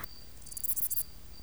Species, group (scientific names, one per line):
Albarracinia zapaterii
Orthoptera